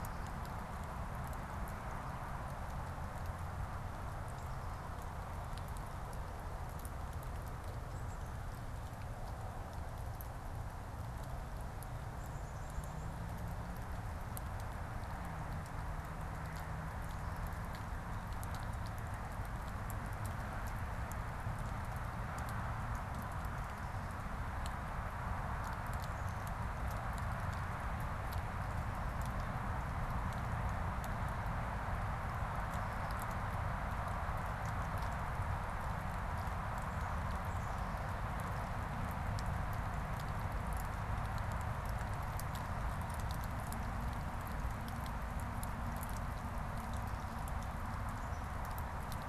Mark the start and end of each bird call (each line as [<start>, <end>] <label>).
[7.74, 13.44] Black-capped Chickadee (Poecile atricapillus)
[37.34, 38.54] Black-capped Chickadee (Poecile atricapillus)